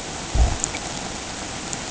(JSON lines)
{"label": "ambient", "recorder": "HydroMoth"}